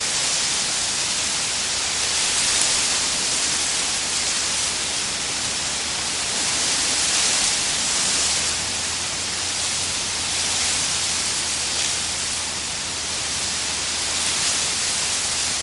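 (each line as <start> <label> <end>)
0.0 A windy breeze blows through a grass field. 15.6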